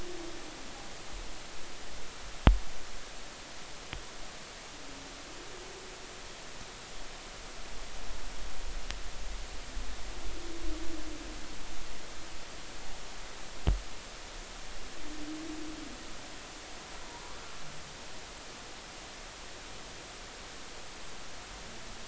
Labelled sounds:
17.1	17.4	humpback whale, 0.90 to 1.2 kHz

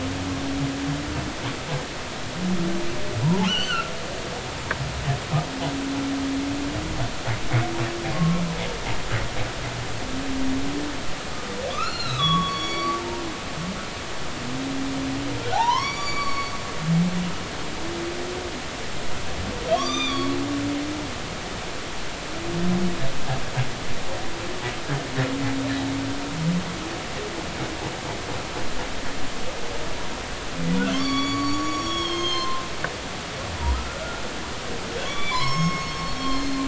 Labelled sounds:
3.2	3.9	humpback whale, 0.80 to 6.3 kHz
8.1	8.4	humpback whale, 1.0 to 1.2 kHz
11.7	13.7	humpback whale, 1.1 to 4.6 kHz
15.5	16.5	humpback whale, 0.80 to 7.0 kHz
19.7	20.3	humpback whale, 1.0 to 6.1 kHz
30.9	32.6	humpback whale, 0.99 to 7.0 kHz
33.7	34.2	humpback whale, 1.2 to 1.5 kHz
35.0	36.6	humpback whale, 0.90 to 6.6 kHz

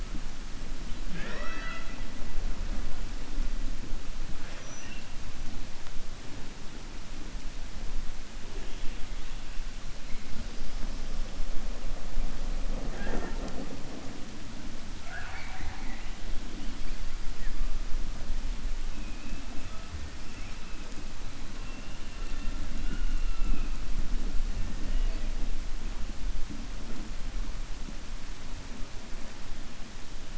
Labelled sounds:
1.0	2.0	killer whale, 0.23 to 5.6 kHz

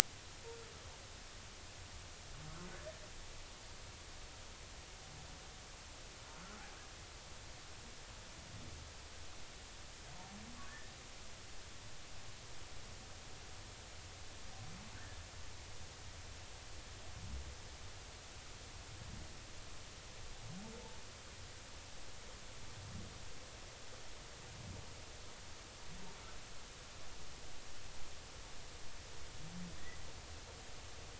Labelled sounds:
14.9	15.2	humpback whale, 1.4 to 1.9 kHz

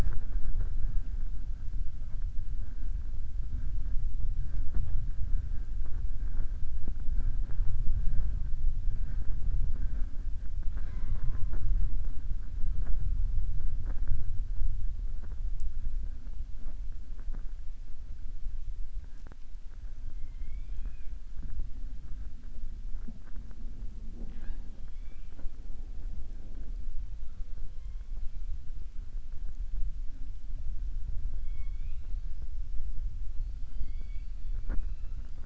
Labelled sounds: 20.1	21.1	killer whale, southern resident, 0.60 to 3.6 kHz
31.3	32.1	killer whale, southern resident, 2.2 to 4.1 kHz

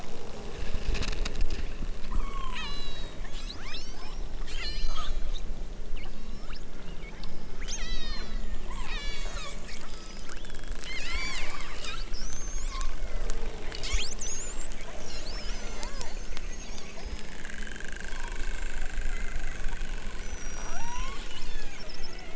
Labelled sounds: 2.0	5.3	killer whale, southern Alaska resident, 0.60 to 8.0 kHz
6.0	6.7	killer whale, southern Alaska resident, 0.60 to 7.5 kHz
7.1	13.4	killer whale, southern Alaska resident, 0.64 to 8.0 kHz
13.7	16.2	killer whale, southern Alaska resident, 0.60 to 8.0 kHz
16.8	17.5	killer whale, southern Alaska resident, 3.1 to 5.6 kHz
20.6	21.9	killer whale, southern Alaska resident, 0.32 to 6.0 kHz

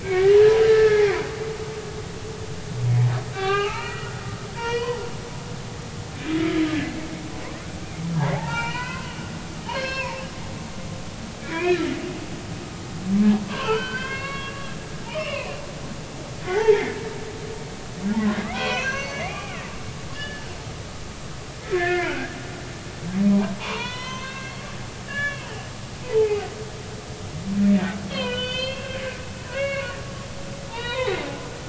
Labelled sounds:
0.0	1.2	humpback whale, 1.2 to 2.4 kHz
3.3	4.3	humpback whale, 0.80 to 4.5 kHz
4.6	5.0	humpback whale, 1.7 to 3.1 kHz
6.3	6.7	humpback whale, 2.0 to 2.3 kHz
8.3	10.2	humpback whale, 0.80 to 5.5 kHz
10.7	11.8	humpback whale, 1.6 to 4.4 kHz
13.5	14.7	humpback whale, 0.99 to 4.8 kHz
15.1	15.6	humpback whale, 0.93 to 3.0 kHz
16.4	17.0	humpback whale, 0.80 to 3.3 kHz
18.5	19.6	humpback whale, 0.93 to 6.3 kHz
20.1	20.5	humpback whale, 1.7 to 3.0 kHz
21.7	22.4	humpback whale, 1.3 to 2.2 kHz
23.6	25.5	humpback whale, 0.83 to 5.6 kHz
26.0	26.5	humpback whale, 0.80 to 2.6 kHz
28.1	29.0	humpback whale, 0.93 to 4.8 kHz
29.5	29.9	humpback whale, 1.1 to 2.8 kHz
30.7	31.2	humpback whale, 1.8 to 4.0 kHz

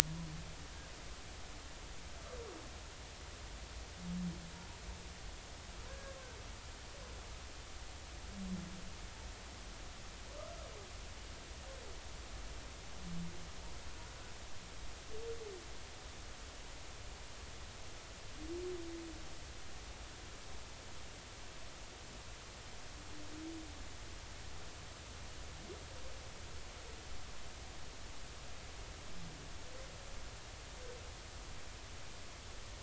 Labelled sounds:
5.9	6.2	humpback whale, 1.5 to 1.7 kHz

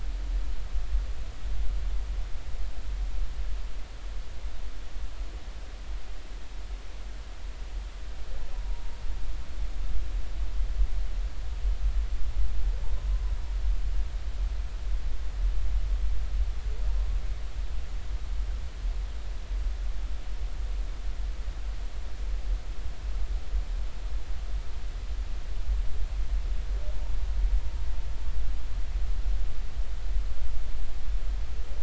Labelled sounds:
8.5	8.8	humpback whale, 0.90 to 1.0 kHz

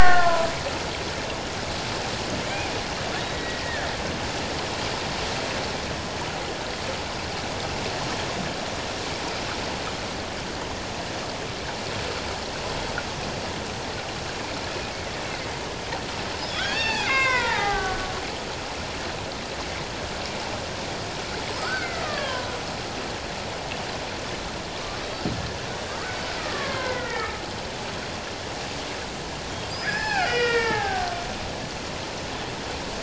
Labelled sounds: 2.4	2.7	killer whale, Bigg's (transient), 2.2 to 2.5 kHz
3.3	3.9	killer whale, Bigg's (transient), 1.4 to 2.0 kHz
16.5	18.1	killer whale, Bigg's (transient), 0.78 to 6.4 kHz
21.5	22.5	killer whale, Bigg's (transient), 0.94 to 7.8 kHz
26.4	27.4	killer whale, Bigg's (transient), 0.91 to 2.2 kHz
29.7	31.2	killer whale, Bigg's (transient), 0.78 to 5.8 kHz

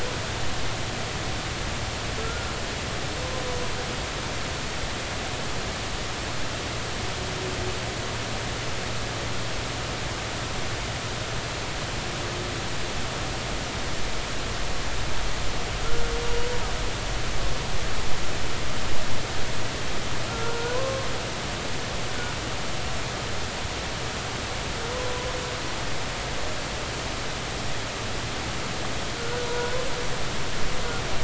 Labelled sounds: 2.2	2.5	humpback whale, 1.3 to 1.5 kHz
15.8	16.5	humpback whale, 1.3 to 2.9 kHz
20.3	21.1	humpback whale, 0.93 to 1.5 kHz
29.2	29.8	humpback whale, 0.93 to 1.6 kHz

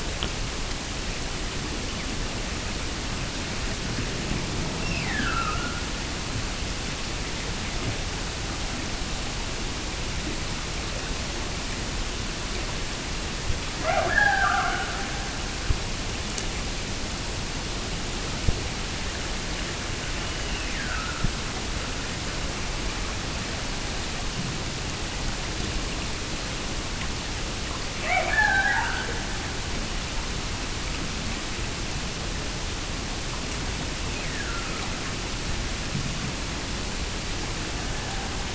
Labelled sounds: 4.8	6.1	killer whale, Bigg's (transient), Gulf of Alaska transient, 1.1 to 5.7 kHz
13.7	15.7	killer whale, Bigg's (transient), Gulf of Alaska transient, 0.23 to 2.5 kHz
20.1	21.4	killer whale, Bigg's (transient), Gulf of Alaska transient, 1.2 to 3.0 kHz
27.9	29.4	killer whale, Bigg's (transient), Gulf of Alaska transient, 0.42 to 3.2 kHz
33.9	35.2	killer whale, Bigg's (transient), Gulf of Alaska transient, 1.1 to 2.9 kHz

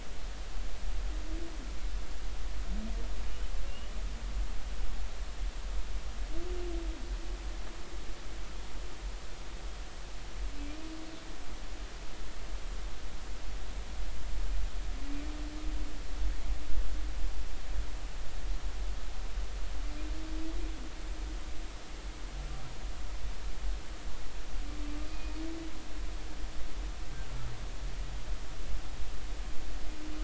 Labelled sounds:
3.7	4.0	humpback whale, 2.7 to 3.0 kHz
25.1	25.3	humpback whale, 2.4 to 2.5 kHz

